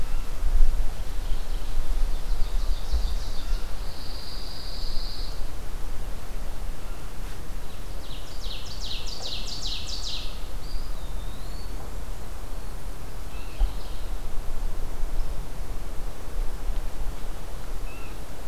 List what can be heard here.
Mourning Warbler, Ovenbird, Pine Warbler, Eastern Wood-Pewee, unidentified call